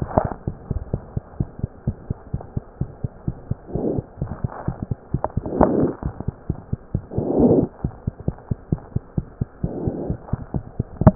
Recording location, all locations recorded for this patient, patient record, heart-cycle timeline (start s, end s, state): mitral valve (MV)
aortic valve (AV)+pulmonary valve (PV)+tricuspid valve (TV)+mitral valve (MV)
#Age: Child
#Sex: Male
#Height: 91.0 cm
#Weight: 15.0 kg
#Pregnancy status: False
#Murmur: Present
#Murmur locations: aortic valve (AV)+pulmonary valve (PV)
#Most audible location: pulmonary valve (PV)
#Systolic murmur timing: Early-systolic
#Systolic murmur shape: Plateau
#Systolic murmur grading: I/VI
#Systolic murmur pitch: Low
#Systolic murmur quality: Harsh
#Diastolic murmur timing: nan
#Diastolic murmur shape: nan
#Diastolic murmur grading: nan
#Diastolic murmur pitch: nan
#Diastolic murmur quality: nan
#Outcome: Abnormal
#Campaign: 2015 screening campaign
0.00	1.38	unannotated
1.38	1.45	S1
1.45	1.62	systole
1.62	1.67	S2
1.67	1.86	diastole
1.86	1.93	S1
1.93	2.08	systole
2.08	2.14	S2
2.14	2.32	diastole
2.32	2.38	S1
2.38	2.55	systole
2.55	2.60	S2
2.60	2.79	diastole
2.79	2.86	S1
2.86	3.03	systole
3.03	3.08	S2
3.08	3.27	diastole
3.27	3.33	S1
3.33	3.48	systole
3.48	3.55	S2
3.55	3.73	diastole
3.73	3.79	S1
3.79	3.96	systole
3.96	4.02	S2
4.02	4.20	diastole
4.20	4.25	S1
4.25	4.42	systole
4.42	4.49	S2
4.49	4.66	diastole
4.66	4.73	S1
4.73	4.89	systole
4.89	4.95	S2
4.95	5.11	diastole
5.11	5.19	S1
5.19	11.15	unannotated